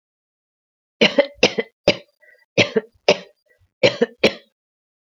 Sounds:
Cough